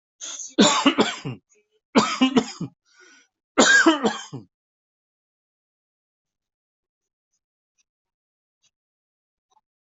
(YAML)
expert_labels:
- quality: good
  cough_type: dry
  dyspnea: false
  wheezing: true
  stridor: false
  choking: false
  congestion: false
  nothing: false
  diagnosis: obstructive lung disease
  severity: mild
age: 68
gender: male
respiratory_condition: false
fever_muscle_pain: false
status: COVID-19